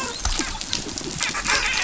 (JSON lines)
{"label": "biophony, dolphin", "recorder": "SoundTrap 500"}